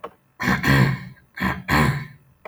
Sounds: Throat clearing